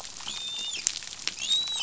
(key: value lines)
label: biophony, dolphin
recorder: SoundTrap 500